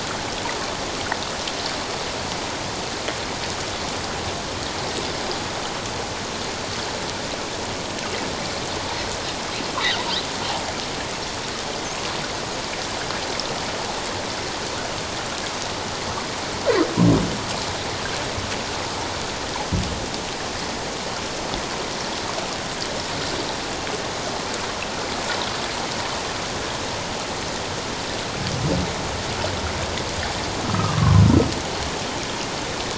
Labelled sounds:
30.6	31.2	humpback whale, 0.97 to 1.3 kHz

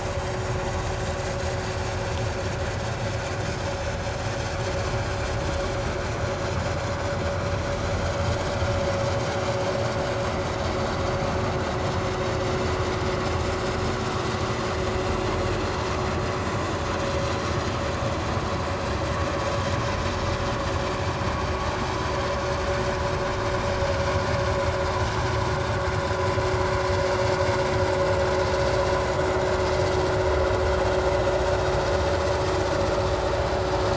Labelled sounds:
0.0	0.3	vessel noise, 6.5 to 6.7 kHz

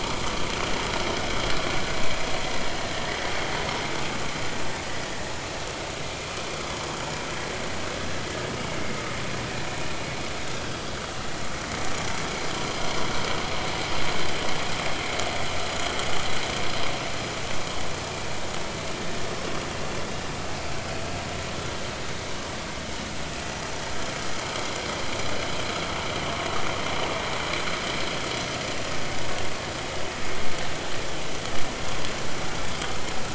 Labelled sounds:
2.9	3.2	vessel noise, 1.7 to 2.1 kHz

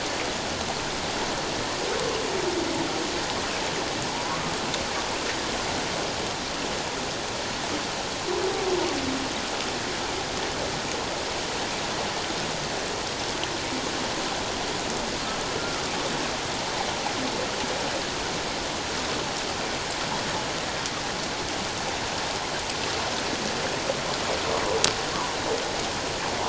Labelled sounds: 4.1	4.5	humpback whale, 0.84 to 1.2 kHz

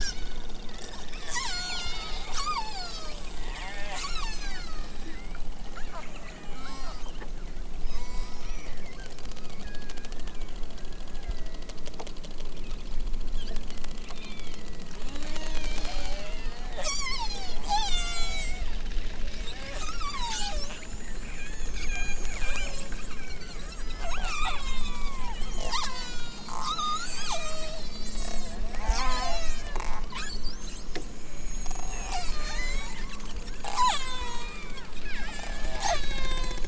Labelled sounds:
0.0	0.5	killer whale, southern Alaska resident, 1.0 to 8.0 kHz
1.3	7.2	killer whale, southern Alaska resident, 0.37 to 8.0 kHz
7.8	9.1	killer whale, southern Alaska resident, 0.78 to 8.0 kHz
9.4	10.2	killer whale, southern Alaska resident, 1.0 to 4.7 kHz
10.7	11.5	killer whale, southern Alaska resident, 0.92 to 2.2 kHz
14.1	14.7	killer whale, southern Alaska resident, 1.7 to 4.4 kHz
15.1	18.6	killer whale, southern Alaska resident, 0.37 to 8.0 kHz
19.5	20.8	killer whale, southern Alaska resident, 0.28 to 8.0 kHz
21.2	30.9	killer whale, southern Alaska resident, 0.23 to 8.0 kHz
31.7	36.6	killer whale, southern Alaska resident, 0.41 to 8.0 kHz

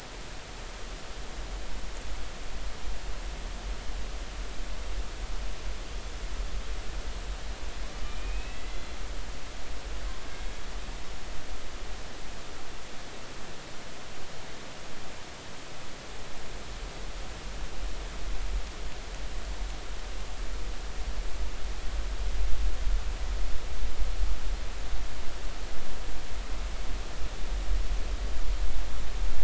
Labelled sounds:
8.0	8.7	killer whale, 2.3 to 2.7 kHz
8.5	9.0	killer whale, Bigg's (transient), 1.9 to 3.5 kHz

